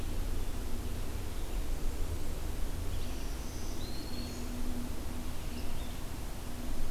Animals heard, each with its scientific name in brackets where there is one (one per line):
Red-eyed Vireo (Vireo olivaceus)
Black-throated Green Warbler (Setophaga virens)